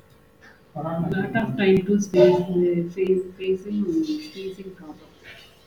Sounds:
Sneeze